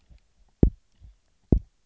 {"label": "biophony, double pulse", "recorder": "SoundTrap 300"}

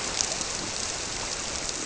{"label": "biophony", "recorder": "SoundTrap 300"}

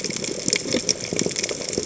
{"label": "biophony", "recorder": "HydroMoth"}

